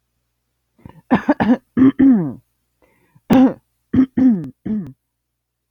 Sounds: Throat clearing